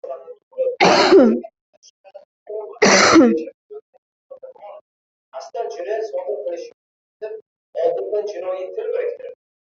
{"expert_labels": [{"quality": "ok", "cough_type": "unknown", "dyspnea": false, "wheezing": false, "stridor": false, "choking": false, "congestion": false, "nothing": true, "diagnosis": "lower respiratory tract infection", "severity": "mild"}, {"quality": "poor", "cough_type": "dry", "dyspnea": false, "wheezing": false, "stridor": false, "choking": false, "congestion": false, "nothing": true, "diagnosis": "COVID-19", "severity": "mild"}, {"quality": "good", "cough_type": "unknown", "dyspnea": false, "wheezing": false, "stridor": false, "choking": false, "congestion": false, "nothing": true, "diagnosis": "healthy cough", "severity": "pseudocough/healthy cough"}, {"quality": "good", "cough_type": "unknown", "dyspnea": false, "wheezing": false, "stridor": false, "choking": false, "congestion": false, "nothing": true, "diagnosis": "lower respiratory tract infection", "severity": "mild"}], "age": 22, "gender": "female", "respiratory_condition": true, "fever_muscle_pain": true, "status": "COVID-19"}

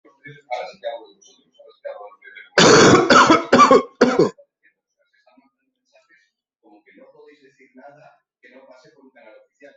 {"expert_labels": [{"quality": "good", "cough_type": "wet", "dyspnea": false, "wheezing": false, "stridor": false, "choking": false, "congestion": false, "nothing": true, "diagnosis": "lower respiratory tract infection", "severity": "mild"}], "age": 45, "gender": "female", "respiratory_condition": false, "fever_muscle_pain": false, "status": "symptomatic"}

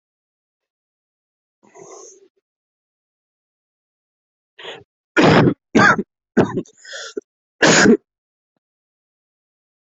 {"expert_labels": [{"quality": "ok", "cough_type": "unknown", "dyspnea": false, "wheezing": false, "stridor": false, "choking": false, "congestion": false, "nothing": true, "diagnosis": "COVID-19", "severity": "mild"}], "age": 42, "gender": "male", "respiratory_condition": false, "fever_muscle_pain": false, "status": "symptomatic"}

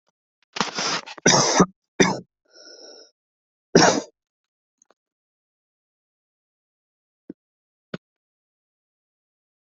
{"expert_labels": [{"quality": "good", "cough_type": "dry", "dyspnea": false, "wheezing": false, "stridor": false, "choking": false, "congestion": false, "nothing": true, "diagnosis": "COVID-19", "severity": "unknown"}], "age": 20, "gender": "male", "respiratory_condition": false, "fever_muscle_pain": true, "status": "healthy"}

